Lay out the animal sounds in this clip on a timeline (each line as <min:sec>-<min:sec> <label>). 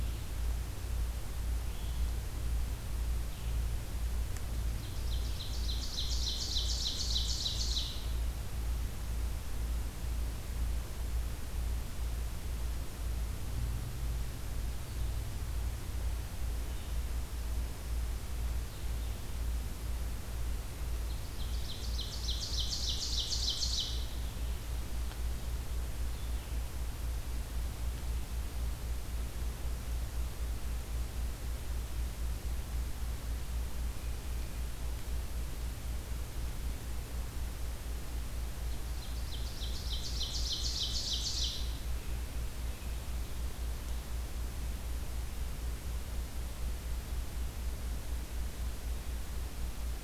0:00.0-0:08.2 Blue-headed Vireo (Vireo solitarius)
0:04.8-0:08.0 Ovenbird (Seiurus aurocapilla)
0:21.4-0:24.1 Ovenbird (Seiurus aurocapilla)
0:39.0-0:41.7 Ovenbird (Seiurus aurocapilla)